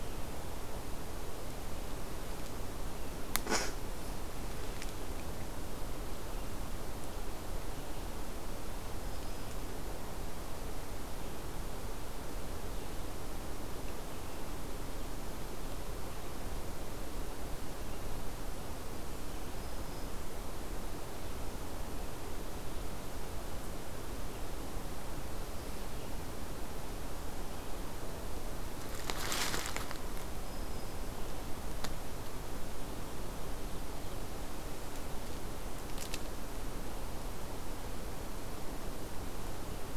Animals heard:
Black-throated Green Warbler (Setophaga virens)

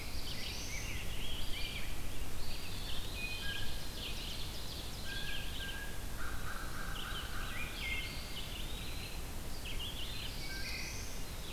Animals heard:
Wood Thrush (Hylocichla mustelina)
Rose-breasted Grosbeak (Pheucticus ludovicianus)
Blue Jay (Cyanocitta cristata)
Ovenbird (Seiurus aurocapilla)
Black-throated Blue Warbler (Setophaga caerulescens)
Red-eyed Vireo (Vireo olivaceus)
American Crow (Corvus brachyrhynchos)
Eastern Wood-Pewee (Contopus virens)

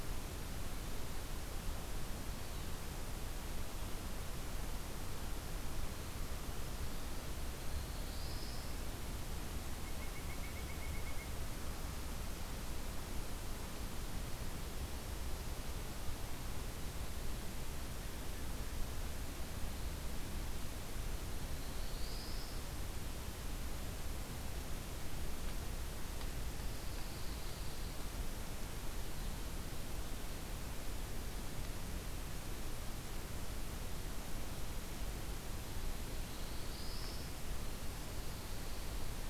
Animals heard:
Black-throated Blue Warbler (Setophaga caerulescens)
Northern Flicker (Colaptes auratus)
Pine Warbler (Setophaga pinus)

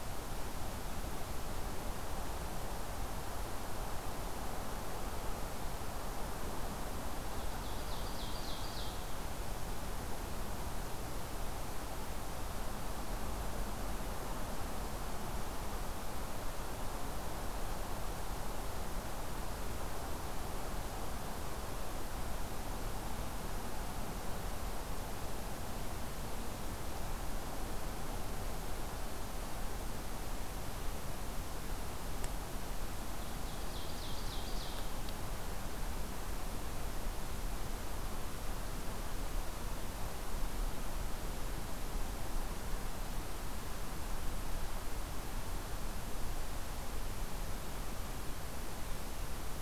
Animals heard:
Ovenbird (Seiurus aurocapilla)

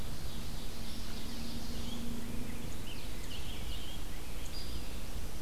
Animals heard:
Ovenbird (Seiurus aurocapilla)
Red-eyed Vireo (Vireo olivaceus)
Rose-breasted Grosbeak (Pheucticus ludovicianus)

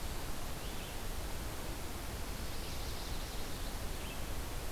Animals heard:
Chestnut-sided Warbler (Setophaga pensylvanica)

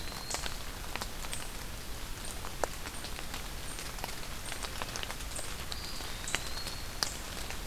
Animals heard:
Eastern Wood-Pewee (Contopus virens)

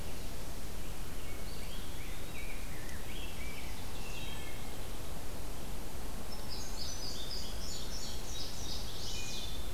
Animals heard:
Rose-breasted Grosbeak (Pheucticus ludovicianus)
Wood Thrush (Hylocichla mustelina)
Indigo Bunting (Passerina cyanea)
Eastern Wood-Pewee (Contopus virens)

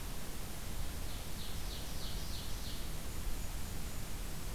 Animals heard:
Ovenbird (Seiurus aurocapilla)
Golden-crowned Kinglet (Regulus satrapa)

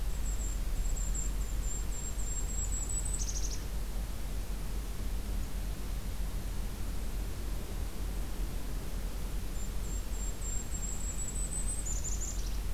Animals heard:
Golden-crowned Kinglet (Regulus satrapa)

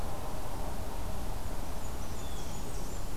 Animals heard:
Blue Jay (Cyanocitta cristata)
Blackburnian Warbler (Setophaga fusca)

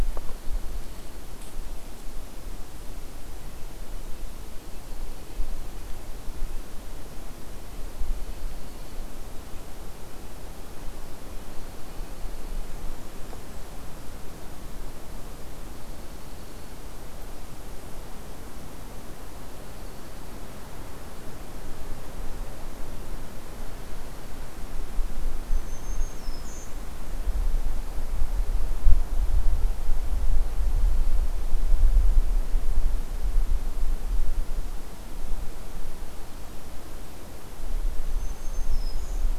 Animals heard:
Dark-eyed Junco (Junco hyemalis)
Red-breasted Nuthatch (Sitta canadensis)
Black-throated Green Warbler (Setophaga virens)
Blackburnian Warbler (Setophaga fusca)

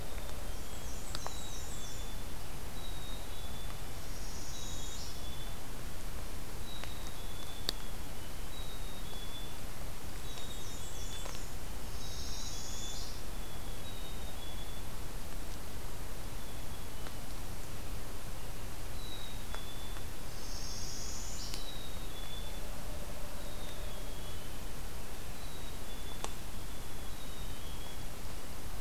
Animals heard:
Northern Parula (Setophaga americana)
Black-and-white Warbler (Mniotilta varia)
Black-capped Chickadee (Poecile atricapillus)

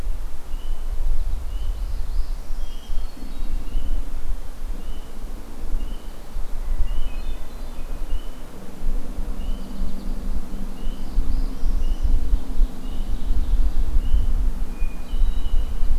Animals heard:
Hermit Thrush (Catharus guttatus)
Ovenbird (Seiurus aurocapilla)
Northern Parula (Setophaga americana)
American Goldfinch (Spinus tristis)

